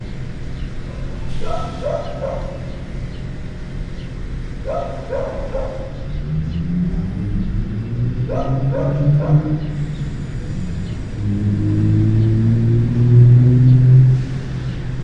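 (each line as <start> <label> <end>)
1.3 A dog barks sharply. 3.1
4.5 A dog barks sharply. 6.0
6.0 A car engine roars deeply as it accelerates. 15.0
8.2 A dog barks sharply. 10.3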